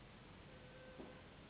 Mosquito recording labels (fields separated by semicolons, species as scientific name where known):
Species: Anopheles gambiae s.s.; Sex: female; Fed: unfed; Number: one; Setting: insect culture